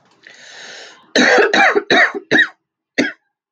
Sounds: Cough